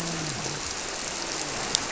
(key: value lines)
label: biophony, grouper
recorder: SoundTrap 300